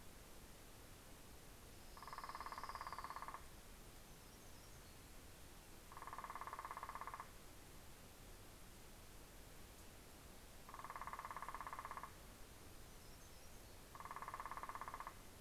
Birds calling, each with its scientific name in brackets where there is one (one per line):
Hermit Warbler (Setophaga occidentalis)
Orange-crowned Warbler (Leiothlypis celata)